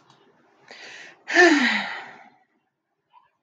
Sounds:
Sigh